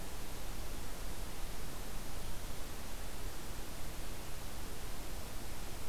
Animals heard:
forest ambience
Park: Hubbard Brook Experimental Forest